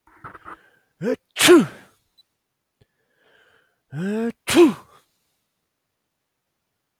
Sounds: Sneeze